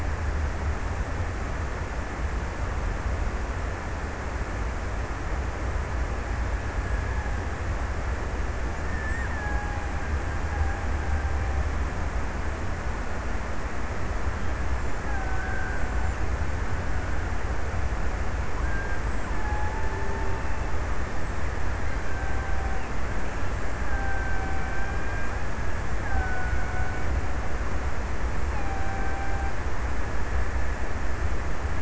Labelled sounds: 5.5	8.0	killer whale, Bigg's (transient), 0.72 to 2.1 kHz
8.6	12.4	killer whale, Bigg's (transient), 0.66 to 2.1 kHz
14.8	16.8	killer whale, Bigg's (transient), 0.58 to 1.9 kHz
18.3	21.2	killer whale, Bigg's (transient), 0.58 to 2.1 kHz
22.9	30.5	killer whale, Bigg's (transient), 0.51 to 3.4 kHz

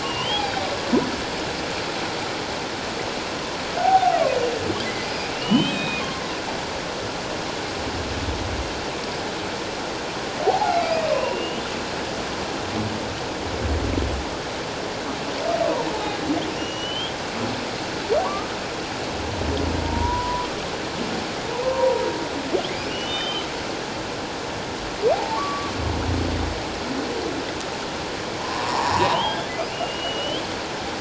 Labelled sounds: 3.8	4.2	humpback whale, 0.78 to 1.6 kHz
5.3	6.0	humpback whale, 2.4 to 3.9 kHz
10.4	11.6	humpback whale, 0.78 to 3.1 kHz
16.6	17.2	humpback whale, 2.8 to 5.9 kHz
18.2	18.5	humpback whale, 0.91 to 1.3 kHz
19.8	20.5	humpback whale, 0.91 to 1.0 kHz
21.5	22.0	humpback whale, 0.84 to 1.1 kHz
22.9	23.4	humpback whale, 2.8 to 3.7 kHz
25.1	25.7	humpback whale, 0.78 to 1.2 kHz
28.4	30.4	humpback whale, 0.78 to 3.5 kHz

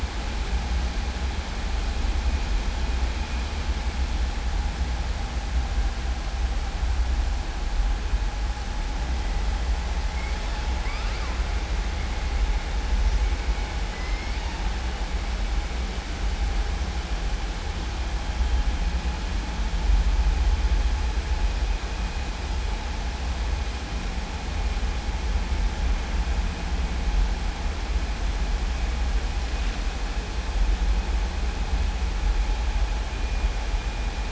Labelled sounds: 10.7	11.3	killer whale, southern resident, 1.0 to 5.2 kHz
13.9	14.6	killer whale, southern resident, 0.90 to 3.0 kHz

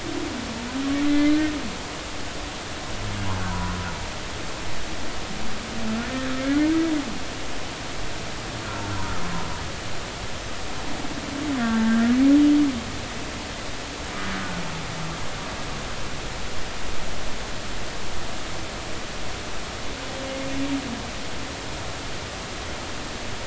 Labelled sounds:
1.1	1.4	humpback whale, 2.0 to 2.1 kHz
3.3	3.7	humpback whale, 0.90 to 1.6 kHz
6.4	6.8	humpback whale, 1.3 to 2.2 kHz
11.6	12.0	humpback whale, 1.3 to 1.9 kHz

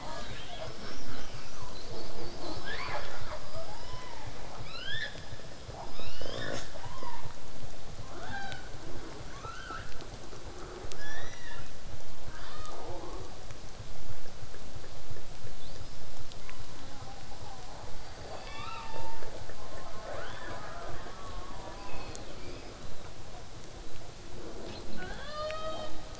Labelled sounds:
0.0	3.1	killer whale, southern resident, call S10, 0.29 to 8.0 kHz
2.3	2.6	killer whale, southern resident, J pod, call S05, 0.25 to 8.0 kHz
2.6	4.4	killer whale, southern resident, 0.33 to 5.7 kHz
4.6	5.1	killer whale, southern resident, L pod, call S19, 1.1 to 7.3 kHz
5.9	6.5	killer whale, southern resident, L pod, call S19, 0.87 to 7.5 kHz
6.7	7.3	killer whale, southern resident, 0.25 to 5.6 kHz
8.1	8.7	killer whale, southern resident, L pod, call S18, 0.22 to 7.2 kHz
10.9	11.7	killer whale, southern resident, 0.80 to 6.1 kHz
12.3	12.9	killer whale, southern resident, L pod, call S18, 0.80 to 7.0 kHz
15.6	16.0	killer whale, southern resident, whistle, 3.3 to 5.6 kHz
16.4	19.3	killer whale, southern resident, 0.18 to 5.5 kHz
20.0	20.7	killer whale, southern resident, 0.29 to 5.0 kHz
21.8	23.1	killer whale, southern resident, 2.1 to 5.2 kHz
24.7	26.0	killer whale, southern resident, L pod, call S18, 0.25 to 8.0 kHz

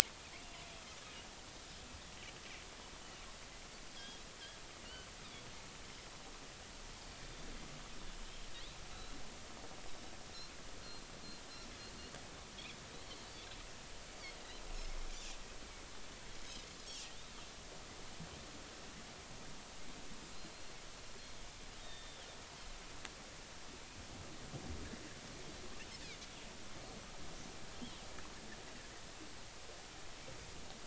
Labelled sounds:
3.9	5.1	Pacific white-sided dolphin, 2.8 to 3.5 kHz
8.9	9.2	Pacific white-sided dolphin, 3.8 to 4.2 kHz
16.9	17.1	Pacific white-sided dolphin, 2.6 to 3.4 kHz
20.3	20.8	Pacific white-sided dolphin, 3.9 to 4.3 kHz
21.8	22.3	Pacific white-sided dolphin, 1.7 to 3.8 kHz
27.7	28.0	Pacific white-sided dolphin, 3.0 to 3.4 kHz

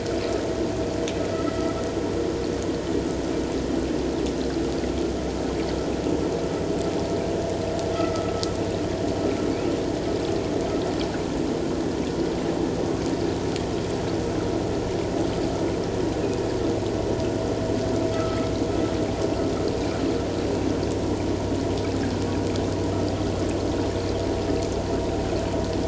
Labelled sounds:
1.3	1.6	vessel noise, 1.9 to 2.0 kHz
7.9	8.3	vessel noise, 1.2 to 2.0 kHz
18.1	18.5	vessel noise, 1.2 to 1.4 kHz

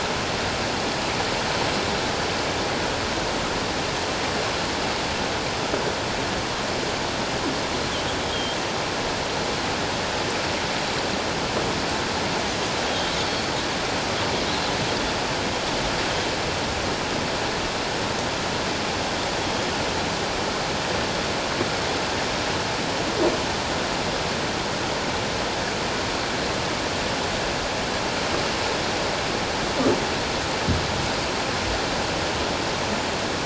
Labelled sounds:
8.3	8.6	Pacific white-sided dolphin, 3.1 to 3.3 kHz
12.9	13.5	Pacific white-sided dolphin, 3.1 to 4.5 kHz

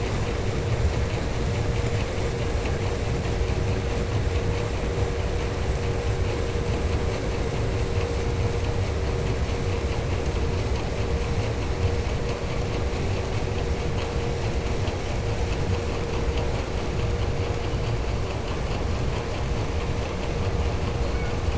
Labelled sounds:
21.0	21.5	killer whale, 0.59 to 2.9 kHz

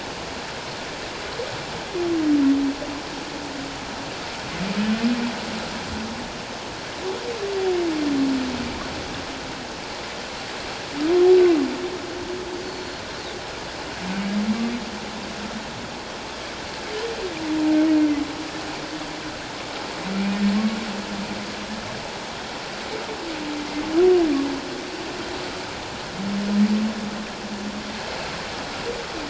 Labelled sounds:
12.6	13.0	Pacific white-sided dolphin, 4.2 to 4.5 kHz

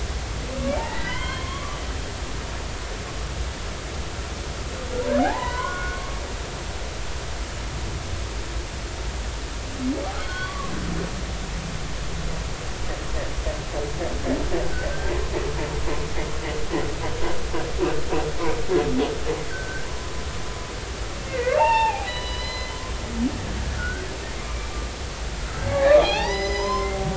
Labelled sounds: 0.8	1.8	humpback whale, 0.83 to 3.3 kHz
5.2	6.1	humpback whale, 0.80 to 4.1 kHz
10.1	10.7	humpback whale, 0.99 to 4.7 kHz
19.5	19.9	humpback whale, 1.4 to 1.6 kHz
21.3	22.8	humpback whale, 0.80 to 5.1 kHz
23.8	24.1	humpback whale, 1.3 to 1.6 kHz
24.4	24.7	humpback whale, 2.2 to 2.4 kHz
25.4	27.0	humpback whale, 0.80 to 6.1 kHz

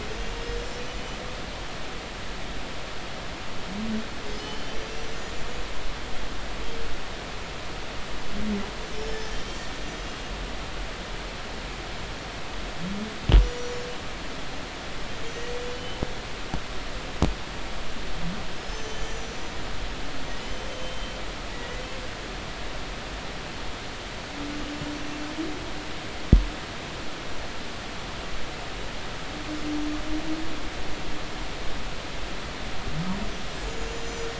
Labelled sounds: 0.0	1.0	humpback whale, 5.1 to 7.3 kHz
4.3	5.5	humpback whale, 2.9 to 7.1 kHz
8.9	9.8	humpback whale, 3.1 to 7.4 kHz
10.1	10.3	humpback whale, 6.1 to 6.2 kHz
13.4	13.9	humpback whale, 5.7 to 6.9 kHz
15.2	16.0	humpback whale, 2.9 to 6.3 kHz
18.6	19.6	humpback whale, 5.1 to 7.2 kHz
20.7	21.7	humpback whale, 2.9 to 3.2 kHz
33.6	34.3	humpback whale, 5.9 to 7.0 kHz

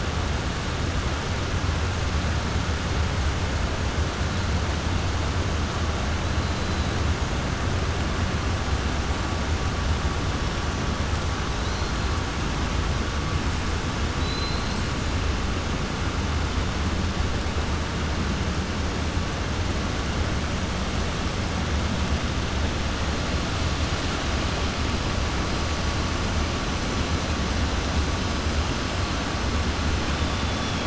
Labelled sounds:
14.1	14.8	killer whale, 3.1 to 4.3 kHz
30.2	30.8	killer whale, 2.8 to 3.6 kHz

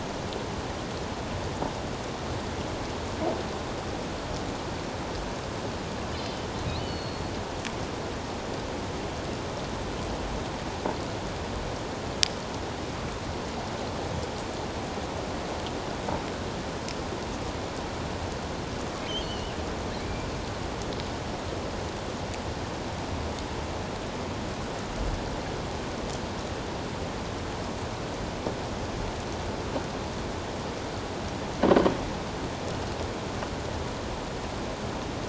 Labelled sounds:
6.7	7.3	killer whale, offshore, 2.9 to 4.6 kHz
19.1	19.5	killer whale, offshore, 2.8 to 4.5 kHz
20.0	20.3	killer whale, offshore, 2.2 to 2.4 kHz

